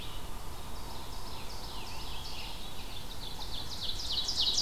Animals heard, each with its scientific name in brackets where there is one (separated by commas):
Ovenbird (Seiurus aurocapilla), Red-eyed Vireo (Vireo olivaceus), Scarlet Tanager (Piranga olivacea)